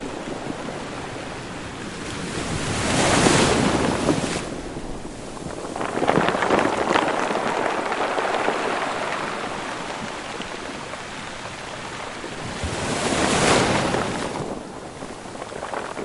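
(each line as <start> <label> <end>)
0.0 The soothing sound of the ocean moving and rustling in the background. 16.0
1.5 Waves aggressively washing against rocks. 5.2
5.3 Water trickling down rocks. 10.5
12.0 Waves aggressively washing against rocks. 15.3
14.8 Water trickling down rocks. 16.0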